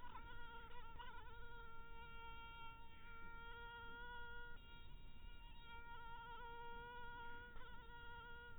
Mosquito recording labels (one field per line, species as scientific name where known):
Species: mosquito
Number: one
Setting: cup